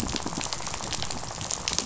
{"label": "biophony, rattle", "recorder": "SoundTrap 500"}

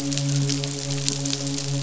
{"label": "biophony, midshipman", "recorder": "SoundTrap 500"}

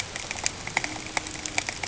{"label": "ambient", "recorder": "HydroMoth"}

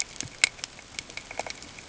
{"label": "ambient", "recorder": "HydroMoth"}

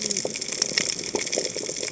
{"label": "biophony, cascading saw", "recorder": "HydroMoth"}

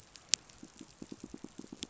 {"label": "biophony, pulse", "recorder": "SoundTrap 500"}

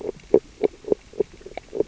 {"label": "biophony, grazing", "recorder": "SoundTrap 600 or HydroMoth"}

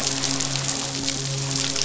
{"label": "biophony, midshipman", "recorder": "SoundTrap 500"}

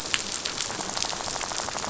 {"label": "biophony, rattle", "recorder": "SoundTrap 500"}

